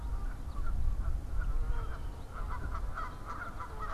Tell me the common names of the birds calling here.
Canada Goose, Blue Jay